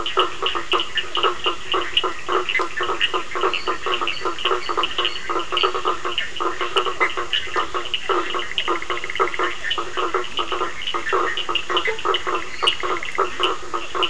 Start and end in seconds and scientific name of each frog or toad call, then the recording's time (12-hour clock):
0.0	13.4	Boana bischoffi
0.0	14.0	Boana faber
0.0	14.0	Sphaenorhynchus surdus
3.2	6.2	Dendropsophus minutus
12.4	13.0	Dendropsophus minutus
9:15pm